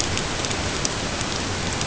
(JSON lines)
{"label": "ambient", "recorder": "HydroMoth"}